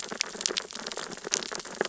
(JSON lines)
{"label": "biophony, sea urchins (Echinidae)", "recorder": "SoundTrap 600 or HydroMoth"}